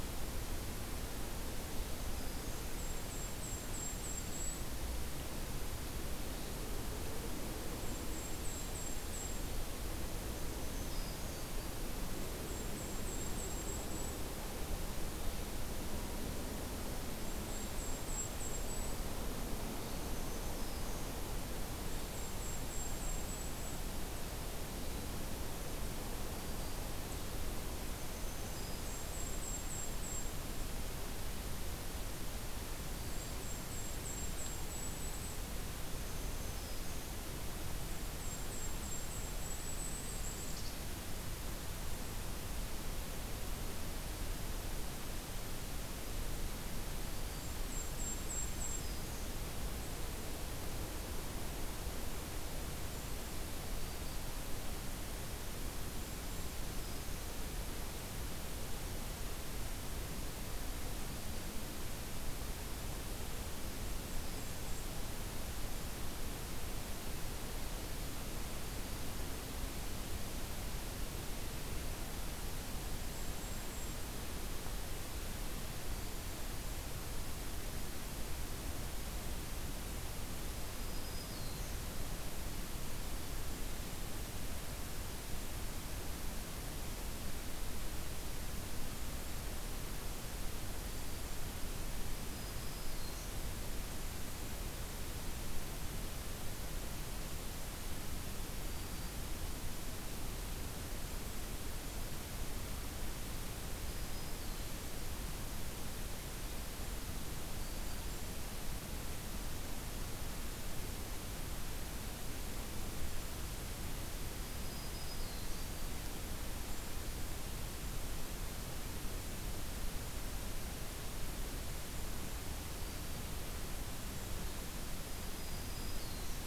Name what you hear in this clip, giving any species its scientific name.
Setophaga virens, Regulus satrapa